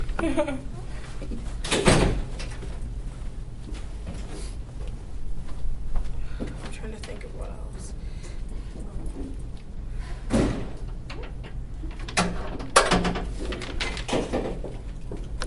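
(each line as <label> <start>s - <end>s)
A calm human laugh in the near distance. 0.0s - 0.7s
A door shuts loudly nearby. 1.6s - 2.3s
Footsteps on a wooden floor in the near distance. 5.1s - 6.4s
Someone is speaking calmly nearby. 6.4s - 8.3s
A door bumps in the medium distance. 10.3s - 10.8s
A door shuts loudly nearby. 12.1s - 13.4s
A door shuts calmly at a medium distance. 13.7s - 14.8s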